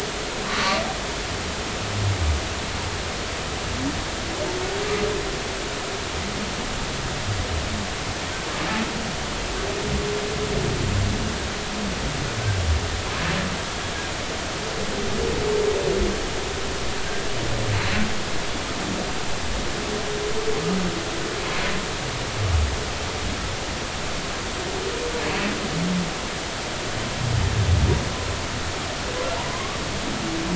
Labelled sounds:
17.1	17.3	humpback whale, 1.5 to 1.8 kHz
29.5	29.8	humpback whale, 0.96 to 1.2 kHz

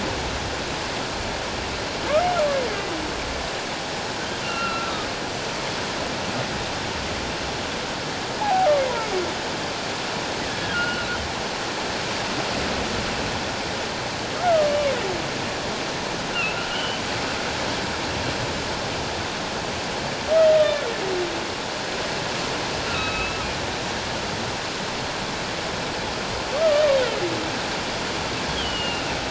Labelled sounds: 2.7	2.9	humpback whale, 1.9 to 2.2 kHz
4.4	5.1	humpback whale, 1.2 to 2.8 kHz
8.4	8.7	humpback whale, 0.78 to 0.94 kHz
10.7	11.1	humpback whale, 1.3 to 3.0 kHz
14.4	14.7	humpback whale, 1.2 to 1.5 kHz
16.5	17.0	humpback whale, 1.3 to 3.1 kHz
22.9	23.4	humpback whale, 1.2 to 4.0 kHz
26.6	26.9	humpback whale, 1.1 to 1.3 kHz
28.5	29.0	humpback whale, 2.6 to 3.4 kHz

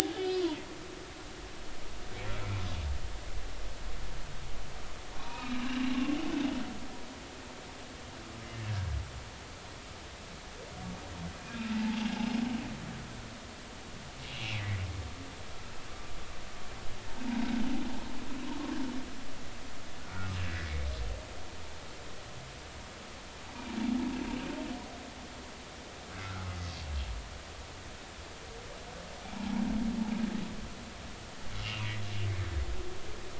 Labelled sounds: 0.1	0.5	humpback whale, 2.8 to 4.9 kHz
5.2	5.6	humpback whale, 0.90 to 2.6 kHz
11.7	12.0	humpback whale, 0.80 to 0.93 kHz
14.3	14.6	humpback whale, 2.2 to 2.9 kHz
21.0	21.3	humpback whale, 1.3 to 1.5 kHz
26.2	26.6	humpback whale, 1.2 to 1.6 kHz

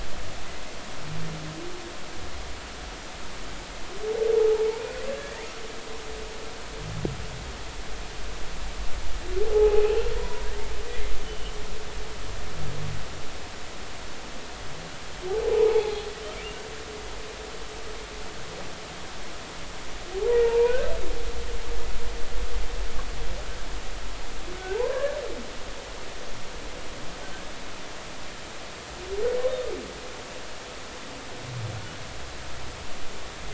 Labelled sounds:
9.5	10.5	humpback whale, 0.80 to 2.8 kHz
10.9	11.5	humpback whale, 1.9 to 3.2 kHz
15.5	16.0	humpback whale, 0.80 to 0.99 kHz
20.4	20.9	humpback whale, 0.86 to 2.6 kHz
24.5	25.2	humpback whale, 0.80 to 1.8 kHz

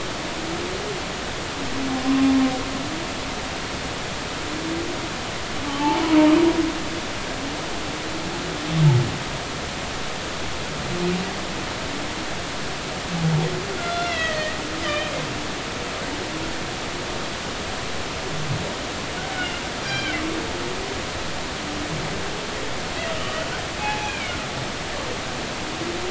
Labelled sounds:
5.7	6.3	humpback whale, 0.80 to 1.2 kHz
13.7	15.1	humpback whale, 1.3 to 4.3 kHz
19.3	20.2	humpback whale, 1.4 to 5.8 kHz
23.2	24.3	humpback whale, 0.80 to 3.1 kHz

